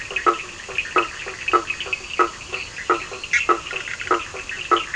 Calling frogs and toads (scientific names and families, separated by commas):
Boana faber (Hylidae), Sphaenorhynchus surdus (Hylidae)